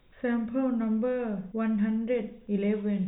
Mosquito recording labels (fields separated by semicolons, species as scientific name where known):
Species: no mosquito; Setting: cup